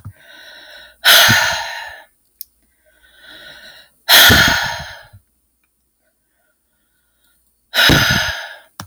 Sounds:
Sigh